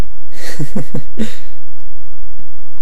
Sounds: Laughter